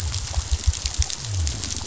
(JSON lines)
{"label": "biophony", "recorder": "SoundTrap 500"}